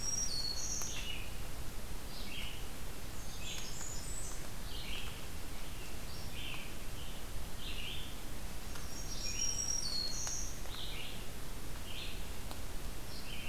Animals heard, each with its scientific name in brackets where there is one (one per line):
Black-throated Green Warbler (Setophaga virens)
Red-eyed Vireo (Vireo olivaceus)
Blackburnian Warbler (Setophaga fusca)